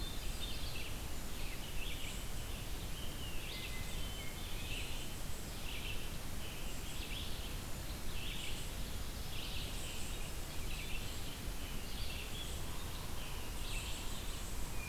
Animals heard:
Eastern Wood-Pewee (Contopus virens)
Hermit Thrush (Catharus guttatus)
Yellow-bellied Sapsucker (Sphyrapicus varius)
Red-eyed Vireo (Vireo olivaceus)

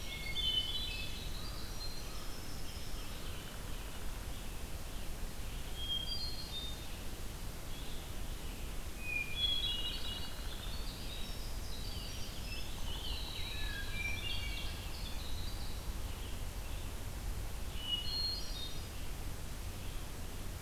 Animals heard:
Hermit Thrush (Catharus guttatus)
Winter Wren (Troglodytes hiemalis)
American Crow (Corvus brachyrhynchos)
unknown woodpecker
Red-eyed Vireo (Vireo olivaceus)

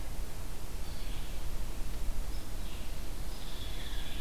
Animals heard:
Red-eyed Vireo (Vireo olivaceus)
Hairy Woodpecker (Dryobates villosus)

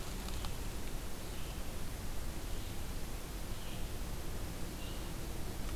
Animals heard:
Red-eyed Vireo (Vireo olivaceus)

